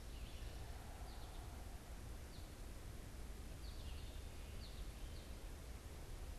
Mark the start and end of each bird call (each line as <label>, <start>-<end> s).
Red-eyed Vireo (Vireo olivaceus), 0.0-6.4 s
American Goldfinch (Spinus tristis), 0.7-6.4 s